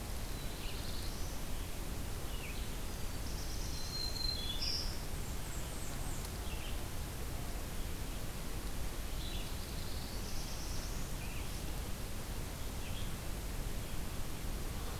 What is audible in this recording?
Black-throated Blue Warbler, Red-eyed Vireo, Black-throated Green Warbler, Blackburnian Warbler